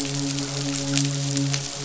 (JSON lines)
{"label": "biophony, midshipman", "recorder": "SoundTrap 500"}